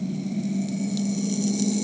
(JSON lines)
{"label": "anthrophony, boat engine", "recorder": "HydroMoth"}